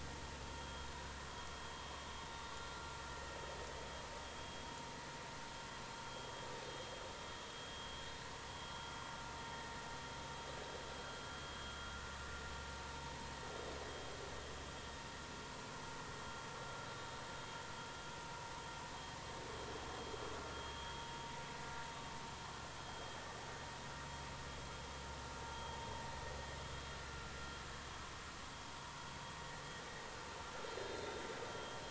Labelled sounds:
8.7	8.9	vessel noise, 1.3 to 1.4 kHz
20.5	21.0	vessel noise, 3.1 to 3.3 kHz
22.9	23.1	vessel noise, 3.1 to 3.3 kHz
31.5	31.8	vessel noise, 3.1 to 3.3 kHz

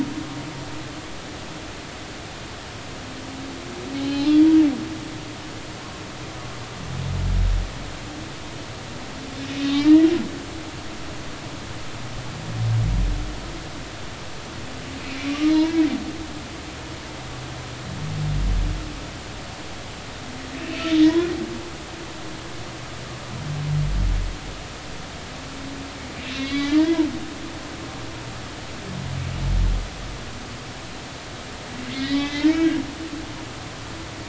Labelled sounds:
4.1	4.3	humpback whale, 4.2 to 4.3 kHz
9.6	10.1	humpback whale, 1.7 to 3.8 kHz
15.3	15.8	humpback whale, 0.86 to 1.3 kHz
26.2	27.1	humpback whale, 0.90 to 4.0 kHz
32.0	32.8	humpback whale, 1.6 to 3.5 kHz

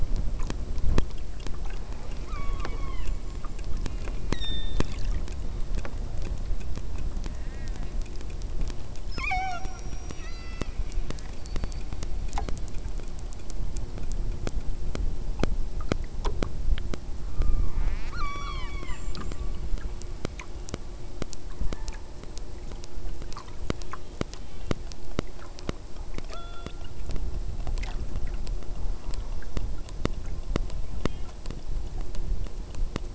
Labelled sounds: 1.7	5.0	killer whale, southern Alaska resident, 0.31 to 8.0 kHz
7.3	8.0	killer whale, southern Alaska resident, 1.2 to 3.1 kHz
9.1	10.7	killer whale, southern Alaska resident, 0.42 to 8.0 kHz
17.2	20.0	killer whale, southern Alaska resident, 0.46 to 8.0 kHz
21.4	22.2	killer whale, southern Alaska resident, 0.75 to 2.0 kHz
23.6	24.8	killer whale, southern Alaska resident, 0.80 to 4.4 kHz
26.3	26.9	killer whale, southern Alaska resident, 0.29 to 5.0 kHz
31.0	31.4	killer whale, southern Alaska resident, 1.5 to 3.4 kHz

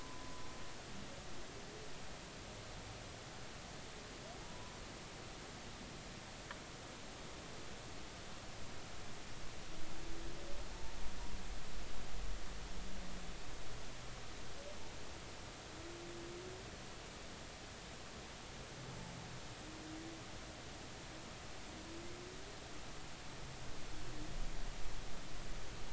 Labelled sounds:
0.0	0.5	humpback whale, 0.96 to 1.1 kHz
4.4	4.7	humpback whale, 0.83 to 1.1 kHz

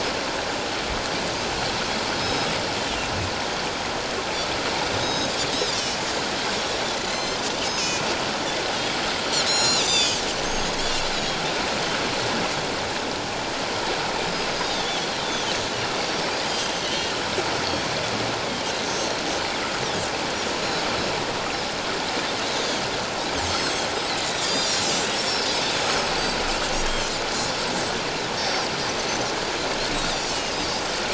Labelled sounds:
2.2	2.5	Pacific white-sided dolphin, 3.8 to 5.2 kHz
4.8	6.0	Pacific white-sided dolphin, 3.5 to 6.5 kHz
7.1	7.4	Pacific white-sided dolphin, 3.9 to 7.4 kHz
7.6	8.0	Pacific white-sided dolphin, 2.4 to 6.6 kHz
9.4	10.8	Pacific white-sided dolphin, 2.4 to 7.9 kHz
14.5	15.1	Pacific white-sided dolphin, 3.2 to 5.0 kHz
16.4	17.1	Pacific white-sided dolphin, 2.8 to 6.2 kHz
18.9	19.2	Pacific white-sided dolphin, 5.5 to 6.6 kHz
20.6	20.9	Pacific white-sided dolphin, 6.6 to 7.0 kHz
23.4	23.7	Pacific white-sided dolphin, 6.0 to 6.6 kHz
24.4	26.1	Pacific white-sided dolphin, 3.5 to 7.8 kHz
26.8	27.7	Pacific white-sided dolphin, 3.0 to 5.3 kHz
28.4	28.6	Pacific white-sided dolphin, 5.3 to 5.5 kHz
29.9	30.8	Pacific white-sided dolphin, 3.5 to 5.3 kHz

